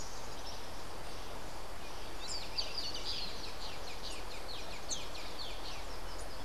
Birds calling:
Social Flycatcher (Myiozetetes similis)

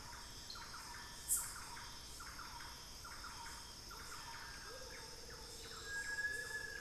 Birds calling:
Thrush-like Wren (Campylorhynchus turdinus), Amazonian Motmot (Momotus momota), Cinereous Tinamou (Crypturellus cinereus), Little Tinamou (Crypturellus soui), Buff-throated Woodcreeper (Xiphorhynchus guttatus)

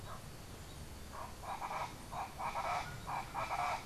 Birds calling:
Colombian Chachalaca (Ortalis columbiana)

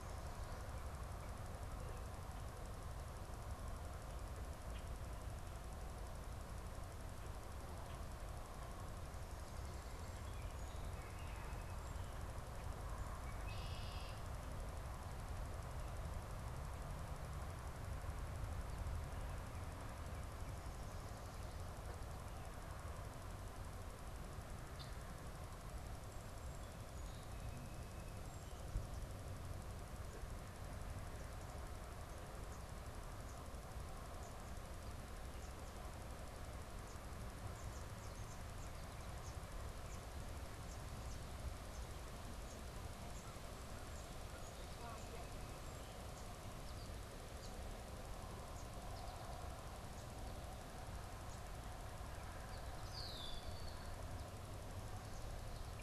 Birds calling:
Red-winged Blackbird (Agelaius phoeniceus), unidentified bird, American Goldfinch (Spinus tristis)

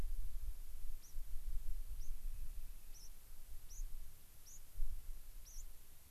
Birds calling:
White-crowned Sparrow (Zonotrichia leucophrys), Rock Wren (Salpinctes obsoletus)

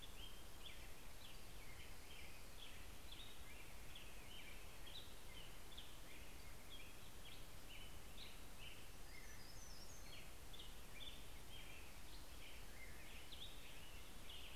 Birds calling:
American Robin (Turdus migratorius), Hermit Warbler (Setophaga occidentalis)

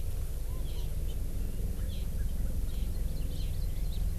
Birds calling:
Hawaii Amakihi (Chlorodrepanis virens)

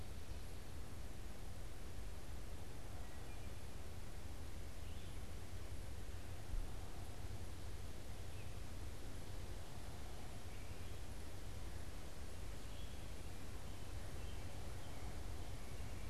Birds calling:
Red-eyed Vireo (Vireo olivaceus), Wood Thrush (Hylocichla mustelina)

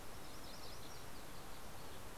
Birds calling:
MacGillivray's Warbler (Geothlypis tolmiei)

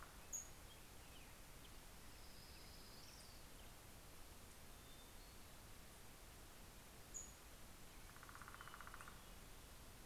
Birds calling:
Hermit Thrush (Catharus guttatus), Orange-crowned Warbler (Leiothlypis celata), Pacific-slope Flycatcher (Empidonax difficilis), Black-headed Grosbeak (Pheucticus melanocephalus), Northern Flicker (Colaptes auratus)

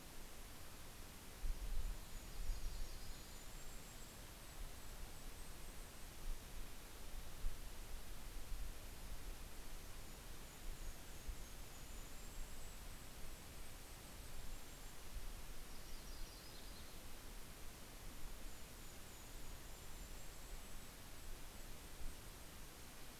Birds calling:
Golden-crowned Kinglet (Regulus satrapa), Yellow-rumped Warbler (Setophaga coronata), Red-breasted Nuthatch (Sitta canadensis)

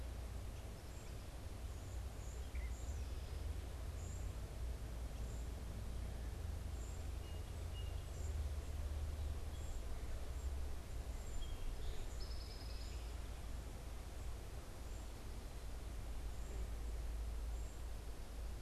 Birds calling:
Song Sparrow (Melospiza melodia), unidentified bird

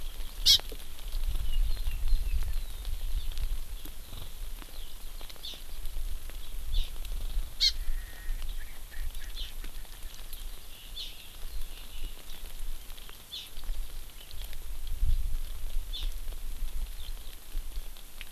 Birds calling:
Erckel's Francolin (Pternistis erckelii), Hawaii Amakihi (Chlorodrepanis virens)

